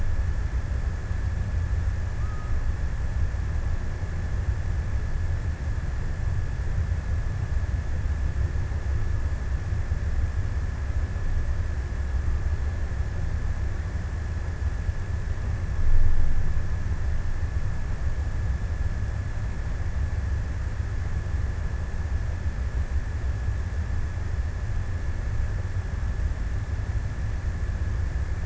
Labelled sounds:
1.8	3.5	killer whale, offshore, 0.92 to 1.4 kHz

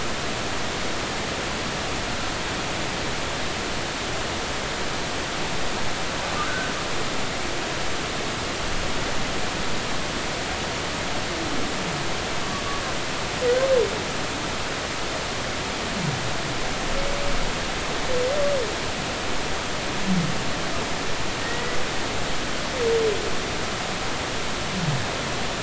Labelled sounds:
6.4	6.7	humpback whale, 1.4 to 1.6 kHz
21.4	21.8	humpback whale, 1.8 to 2.0 kHz

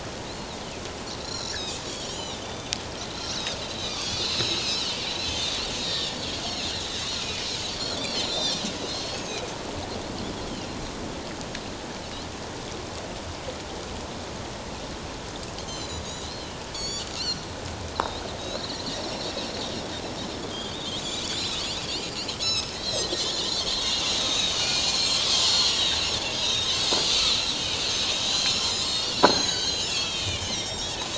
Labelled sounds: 0.3	2.8	Pacific white-sided dolphin, 2.4 to 7.2 kHz
3.1	4.9	Pacific white-sided dolphin, 2.3 to 5.5 kHz
5.8	9.4	Pacific white-sided dolphin, 1.8 to 6.7 kHz
15.6	17.4	Pacific white-sided dolphin, 3.0 to 7.4 kHz
17.9	19.3	Pacific white-sided dolphin, 3.6 to 6.9 kHz
20.5	21.6	Pacific white-sided dolphin, 2.9 to 5.0 kHz
22.4	26.0	Pacific white-sided dolphin, 1.5 to 8.0 kHz
26.4	27.6	Pacific white-sided dolphin, 2.2 to 6.0 kHz
28.3	31.0	Pacific white-sided dolphin, 1.4 to 7.6 kHz

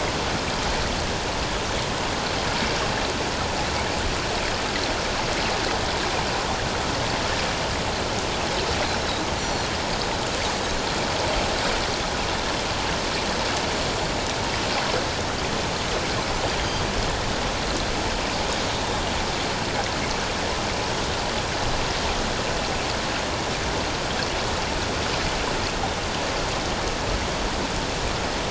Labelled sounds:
9.4	9.7	Pacific white-sided dolphin, 4.1 to 4.4 kHz

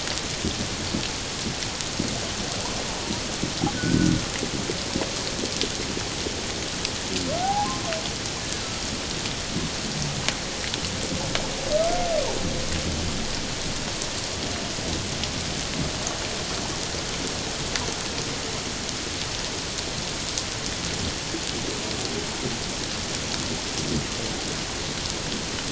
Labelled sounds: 3.7	4.1	humpback whale, 1.4 to 1.6 kHz
7.4	7.7	humpback whale, 0.78 to 1.0 kHz

